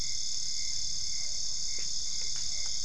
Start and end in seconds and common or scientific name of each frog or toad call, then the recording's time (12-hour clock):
1.1	1.5	Physalaemus cuvieri
2.4	2.7	Physalaemus cuvieri
12:45am